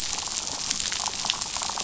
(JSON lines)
{"label": "biophony, damselfish", "recorder": "SoundTrap 500"}